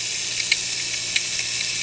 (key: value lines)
label: anthrophony, boat engine
recorder: HydroMoth